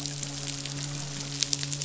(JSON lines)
{"label": "biophony, midshipman", "recorder": "SoundTrap 500"}